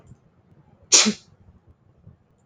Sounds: Sneeze